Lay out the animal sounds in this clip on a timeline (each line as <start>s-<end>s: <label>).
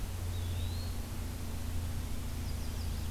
0.2s-1.2s: Eastern Wood-Pewee (Contopus virens)
2.2s-3.1s: Chestnut-sided Warbler (Setophaga pensylvanica)